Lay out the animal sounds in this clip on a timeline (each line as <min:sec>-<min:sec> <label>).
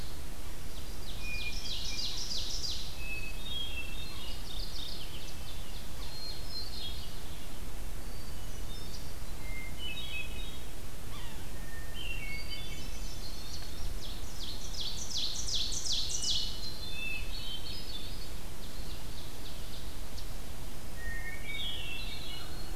0:00.7-0:03.1 Ovenbird (Seiurus aurocapilla)
0:01.0-0:02.2 Hermit Thrush (Catharus guttatus)
0:02.8-0:04.5 Hermit Thrush (Catharus guttatus)
0:04.2-0:06.5 Mourning Warbler (Geothlypis philadelphia)
0:05.9-0:07.3 Hermit Thrush (Catharus guttatus)
0:07.9-0:11.1 Hermit Thrush (Catharus guttatus)
0:10.8-0:12.0 Yellow-bellied Sapsucker (Sphyrapicus varius)
0:11.6-0:13.7 Hermit Thrush (Catharus guttatus)
0:14.0-0:16.8 Ovenbird (Seiurus aurocapilla)
0:16.2-0:18.5 Hermit Thrush (Catharus guttatus)
0:18.6-0:20.2 Ovenbird (Seiurus aurocapilla)
0:20.8-0:22.8 Hermit Thrush (Catharus guttatus)